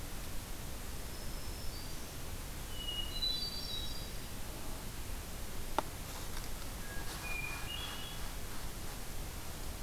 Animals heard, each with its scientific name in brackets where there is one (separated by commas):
Black-throated Green Warbler (Setophaga virens), Hermit Thrush (Catharus guttatus)